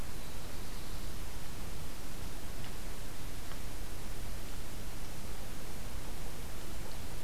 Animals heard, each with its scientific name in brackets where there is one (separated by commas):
Black-throated Blue Warbler (Setophaga caerulescens)